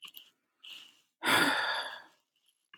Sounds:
Sigh